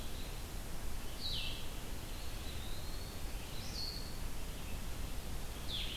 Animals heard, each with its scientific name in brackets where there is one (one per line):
Blue-headed Vireo (Vireo solitarius)
Eastern Wood-Pewee (Contopus virens)